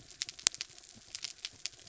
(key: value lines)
label: anthrophony, mechanical
recorder: SoundTrap 300